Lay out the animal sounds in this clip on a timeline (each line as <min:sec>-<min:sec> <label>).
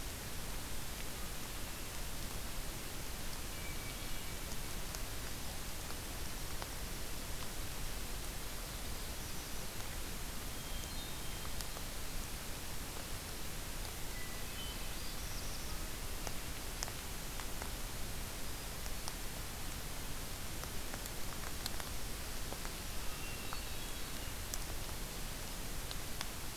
0:03.2-0:04.4 Hermit Thrush (Catharus guttatus)
0:08.3-0:09.7 Black-throated Blue Warbler (Setophaga caerulescens)
0:10.4-0:11.4 Hermit Thrush (Catharus guttatus)
0:13.9-0:14.9 Hermit Thrush (Catharus guttatus)
0:14.8-0:16.0 Black-throated Blue Warbler (Setophaga caerulescens)
0:18.3-0:19.3 Hermit Thrush (Catharus guttatus)
0:23.0-0:24.4 Hermit Thrush (Catharus guttatus)